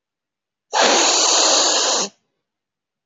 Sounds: Sniff